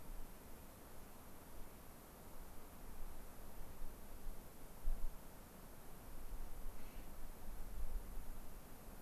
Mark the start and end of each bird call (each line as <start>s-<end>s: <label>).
6.8s-7.1s: Clark's Nutcracker (Nucifraga columbiana)